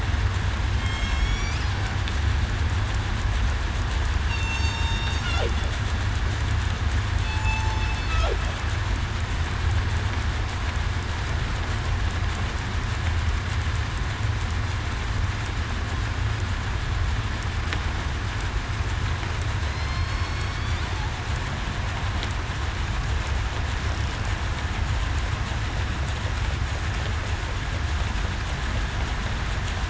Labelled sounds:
0.7	1.5	killer whale, southern resident, 3.1 to 3.5 kHz
4.2	5.1	killer whale, southern resident, 2.7 to 8.0 kHz
7.2	7.7	killer whale, southern resident, 2.58 to 2.65 kHz
19.6	20.8	killer whale, southern resident, 2.0 to 5.5 kHz

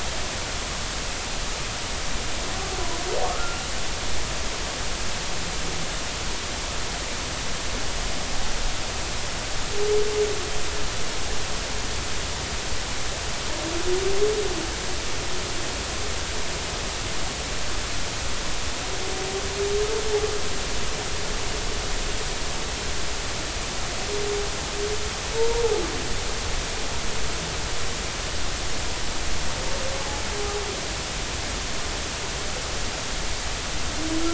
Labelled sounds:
3.3	3.6	humpback whale, 1.2 to 1.4 kHz

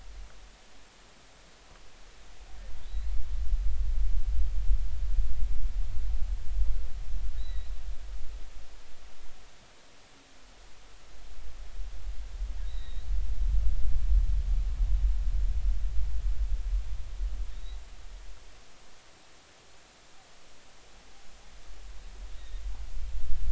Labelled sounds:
2.8	3.2	humpback whale, 3.5 to 4.3 kHz
7.4	7.7	humpback whale, 1.9 to 4.1 kHz
12.6	13.0	humpback whale, 3.6 to 4.1 kHz

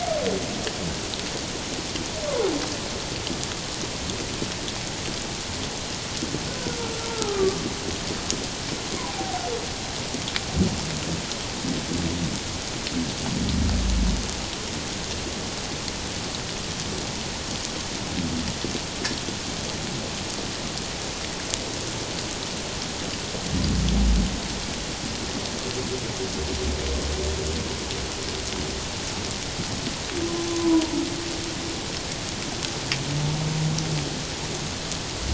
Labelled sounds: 7.1	7.7	humpback whale, 1.1 to 1.4 kHz
9.1	9.4	humpback whale, 0.78 to 0.88 kHz
30.5	30.9	humpback whale, 0.88 to 1.1 kHz

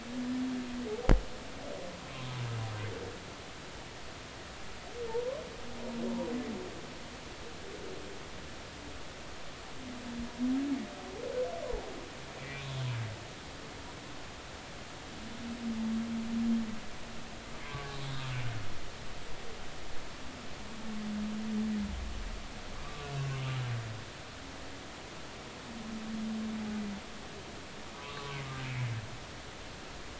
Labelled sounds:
5.1	5.4	humpback whale, 0.83 to 1.1 kHz
12.4	12.6	humpback whale, 2.2 to 2.4 kHz
17.6	18.3	humpback whale, 0.96 to 3.8 kHz
22.8	23.1	humpback whale, 1.1 to 1.3 kHz
27.9	28.3	humpback whale, 0.93 to 1.2 kHz

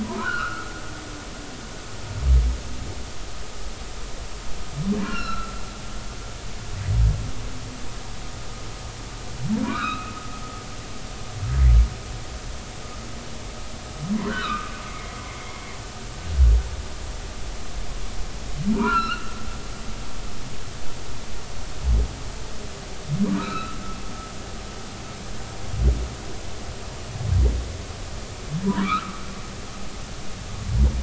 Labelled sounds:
0.0	0.7	humpback whale, 0.86 to 1.6 kHz
5.0	5.6	humpback whale, 1.3 to 4.3 kHz
9.6	10.1	humpback whale, 0.93 to 4.1 kHz
14.3	15.1	humpback whale, 1.1 to 2.3 kHz
18.7	19.3	humpback whale, 0.86 to 4.5 kHz
23.4	23.8	humpback whale, 1.2 to 4.1 kHz
28.6	29.2	humpback whale, 0.90 to 1.5 kHz

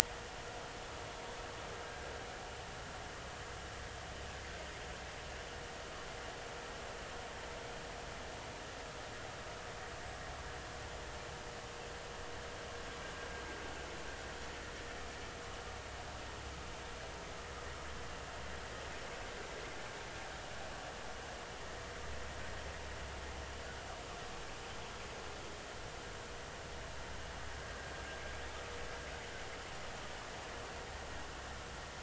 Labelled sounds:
1.8	2.1	vessel noise, 1.5 to 1.7 kHz

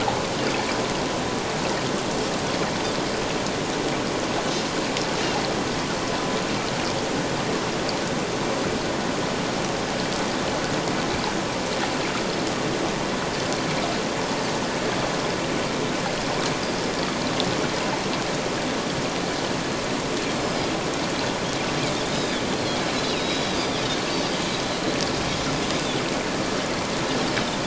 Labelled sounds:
20.4	20.7	Pacific white-sided dolphin, 4.8 to 5.3 kHz
22.1	22.4	Pacific white-sided dolphin, 3.2 to 4.0 kHz
22.9	23.8	Pacific white-sided dolphin, 3.6 to 5.2 kHz

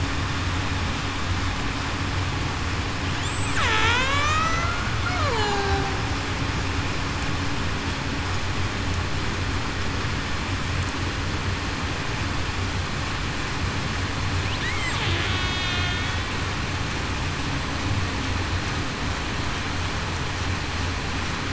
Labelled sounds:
3.6	4.7	killer whale, Bigg's (transient), 0.42 to 8.0 kHz
5.0	5.9	killer whale, Bigg's (transient), 0.38 to 4.4 kHz
15.3	16.3	killer whale, Bigg's (transient), 2.1 to 4.1 kHz

